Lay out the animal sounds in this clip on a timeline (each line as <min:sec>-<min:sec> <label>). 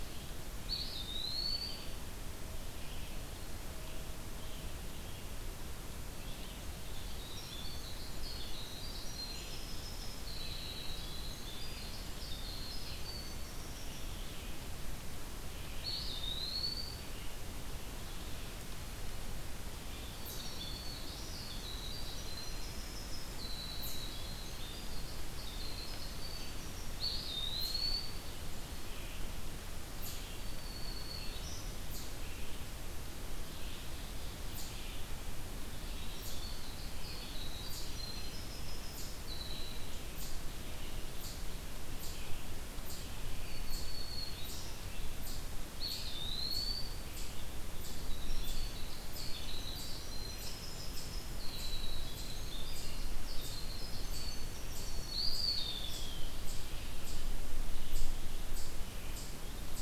0:00.0-0:20.4 Red-eyed Vireo (Vireo olivaceus)
0:00.5-0:02.2 Eastern Wood-Pewee (Contopus virens)
0:05.7-0:14.2 Winter Wren (Troglodytes hiemalis)
0:15.6-0:17.1 Eastern Wood-Pewee (Contopus virens)
0:20.1-0:27.0 Winter Wren (Troglodytes hiemalis)
0:23.8-0:59.8 Eastern Chipmunk (Tamias striatus)
0:26.2-0:59.8 Red-eyed Vireo (Vireo olivaceus)
0:26.8-0:28.5 Eastern Wood-Pewee (Contopus virens)
0:30.2-0:31.8 Black-throated Green Warbler (Setophaga virens)
0:33.3-0:35.0 Ovenbird (Seiurus aurocapilla)
0:35.7-0:40.2 Winter Wren (Troglodytes hiemalis)
0:43.1-0:44.8 Black-throated Green Warbler (Setophaga virens)
0:45.6-0:47.2 Eastern Wood-Pewee (Contopus virens)
0:47.8-0:55.2 Winter Wren (Troglodytes hiemalis)
0:54.9-0:56.5 Eastern Wood-Pewee (Contopus virens)
0:54.9-0:56.1 Black-throated Green Warbler (Setophaga virens)